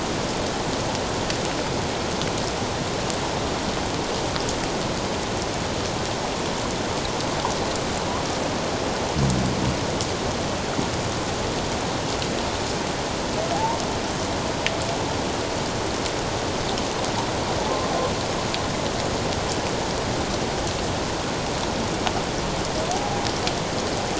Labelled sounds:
22.9	23.2	humpback whale, 0.78 to 0.88 kHz

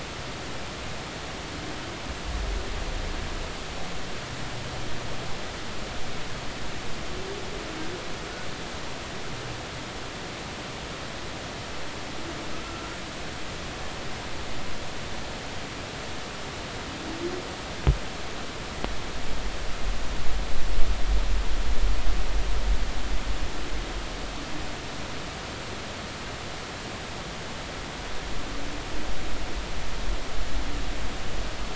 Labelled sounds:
12.6	12.9	humpback whale, 1.3 to 1.4 kHz

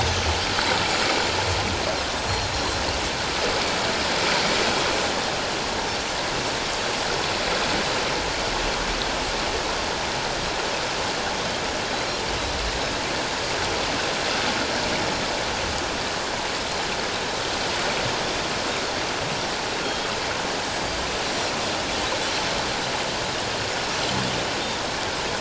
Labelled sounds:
2.5	2.8	Pacific white-sided dolphin, 4.1 to 4.2 kHz
11.9	12.2	Pacific white-sided dolphin, 3.9 to 4.2 kHz
19.8	20.1	Pacific white-sided dolphin, 3.2 to 3.3 kHz
21.3	21.5	Pacific white-sided dolphin, 5.5 to 5.8 kHz

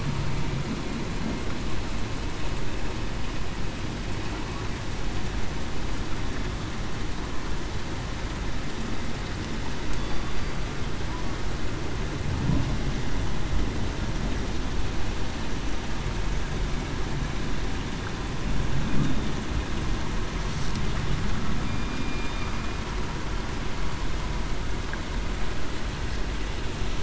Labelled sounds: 21.6	22.3	killer whale, southern resident, 2.3 to 2.5 kHz

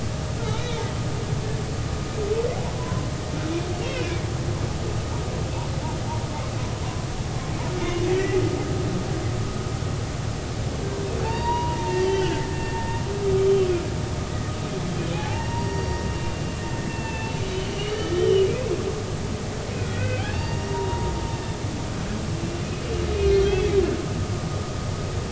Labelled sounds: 0.4	0.8	humpback whale, 1.2 to 4.0 kHz
2.8	4.2	humpback whale, 0.93 to 3.3 kHz
8.1	8.4	humpback whale, 1.8 to 2.1 kHz
11.2	13.7	humpback whale, 0.83 to 4.9 kHz
15.1	16.0	humpback whale, 0.80 to 5.7 kHz
16.9	18.5	humpback whale, 1.7 to 3.2 kHz
19.7	21.1	humpback whale, 0.83 to 4.7 kHz
23.1	23.7	humpback whale, 2.3 to 4.4 kHz

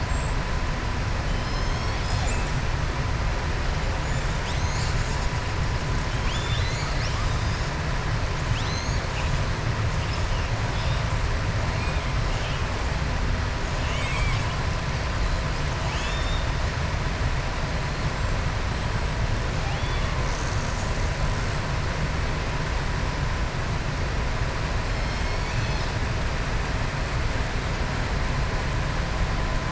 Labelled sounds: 6.1	7.2	killer whale, southern resident, 1.7 to 7.4 kHz
15.8	16.5	killer whale, southern resident, 1.8 to 7.9 kHz
19.6	20.1	killer whale, southern resident, 2.4 to 3.5 kHz

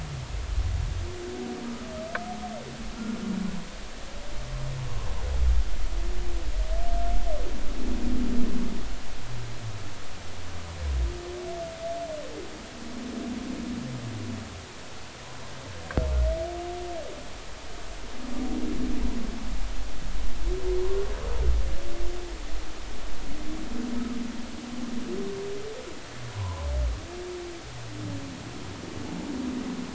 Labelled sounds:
26.3	26.7	humpback whale, 0.83 to 1.1 kHz

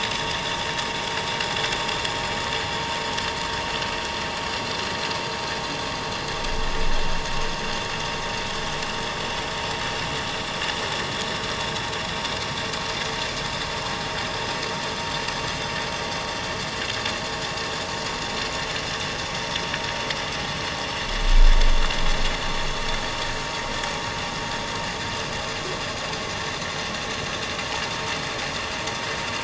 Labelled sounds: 16.8	17.2	vessel noise, 6.6 to 7.0 kHz
20.8	21.1	vessel noise, 6.1 to 6.2 kHz

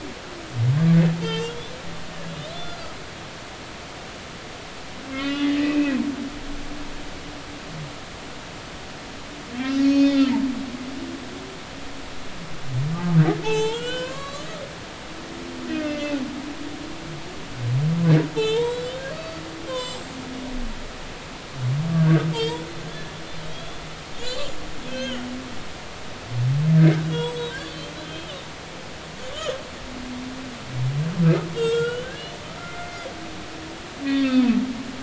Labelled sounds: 1.2	1.7	humpback whale, 0.86 to 3.7 kHz
2.5	2.9	humpback whale, 3.3 to 4.9 kHz
5.1	6.0	humpback whale, 1.1 to 3.3 kHz
9.8	10.3	humpback whale, 2.4 to 5.6 kHz
13.4	14.5	humpback whale, 0.80 to 7.6 kHz
15.0	16.2	humpback whale, 1.4 to 4.6 kHz
18.3	19.4	humpback whale, 0.86 to 7.6 kHz
19.7	20.0	humpback whale, 0.96 to 7.6 kHz
21.9	22.6	humpback whale, 1.4 to 4.8 kHz
23.5	24.5	humpback whale, 3.2 to 7.3 kHz
24.8	25.2	humpback whale, 1.4 to 3.3 kHz
27.0	28.3	humpback whale, 0.90 to 7.8 kHz
31.6	32.1	humpback whale, 1.3 to 4.3 kHz
32.6	33.1	humpback whale, 2.0 to 2.2 kHz
34.1	34.4	humpback whale, 1.5 to 1.7 kHz

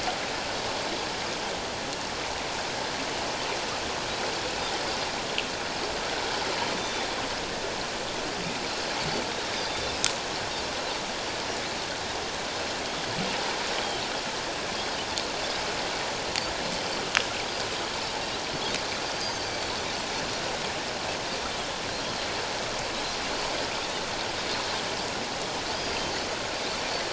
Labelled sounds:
6.8	7.1	Pacific white-sided dolphin, 3.4 to 6.0 kHz
9.5	10.0	Pacific white-sided dolphin, 3.5 to 3.7 kHz
13.8	14.0	Pacific white-sided dolphin, 3.0 to 3.3 kHz
19.1	19.7	Pacific white-sided dolphin, 4.5 to 4.9 kHz
25.7	26.0	Pacific white-sided dolphin, 4.8 to 5.0 kHz

